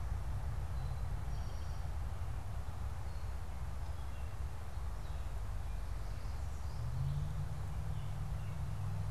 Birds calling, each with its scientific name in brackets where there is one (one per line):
Eastern Towhee (Pipilo erythrophthalmus)